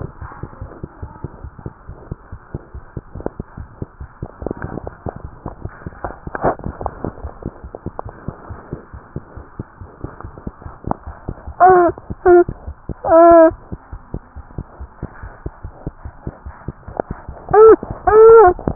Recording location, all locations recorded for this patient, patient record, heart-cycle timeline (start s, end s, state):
pulmonary valve (PV)
aortic valve (AV)+pulmonary valve (PV)+tricuspid valve (TV)+mitral valve (MV)
#Age: Infant
#Sex: Male
#Height: 69.0 cm
#Weight: 7.67 kg
#Pregnancy status: False
#Murmur: Absent
#Murmur locations: nan
#Most audible location: nan
#Systolic murmur timing: nan
#Systolic murmur shape: nan
#Systolic murmur grading: nan
#Systolic murmur pitch: nan
#Systolic murmur quality: nan
#Diastolic murmur timing: nan
#Diastolic murmur shape: nan
#Diastolic murmur grading: nan
#Diastolic murmur pitch: nan
#Diastolic murmur quality: nan
#Outcome: Abnormal
#Campaign: 2015 screening campaign
0.00	13.50	unannotated
13.50	13.57	S1
13.57	13.69	systole
13.69	13.77	S2
13.77	13.86	diastole
13.86	14.00	S1
14.00	14.12	systole
14.12	14.24	S2
14.24	14.35	diastole
14.35	14.43	S1
14.43	14.57	systole
14.57	14.66	S2
14.66	14.80	diastole
14.80	14.89	S1
14.89	15.01	systole
15.01	15.07	S2
15.07	15.22	diastole
15.22	15.31	S1
15.31	15.44	systole
15.44	15.51	S2
15.51	15.64	diastole
15.64	15.70	S1
15.70	15.86	systole
15.86	15.92	S2
15.92	16.05	diastole
16.05	16.12	S1
16.12	16.26	systole
16.26	16.32	S2
16.32	16.44	diastole
16.44	16.52	S1
16.52	16.66	systole
16.66	16.76	S2
16.76	16.86	diastole
16.86	16.96	S1
16.96	17.08	systole
17.08	17.20	S2
17.20	17.28	diastole
17.28	17.36	S1
17.36	17.49	systole
17.49	17.54	S2
17.54	18.75	unannotated